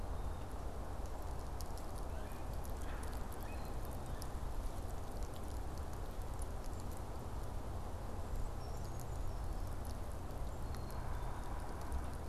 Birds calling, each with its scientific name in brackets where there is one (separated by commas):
Yellow-bellied Sapsucker (Sphyrapicus varius), Brown Creeper (Certhia americana), Black-capped Chickadee (Poecile atricapillus)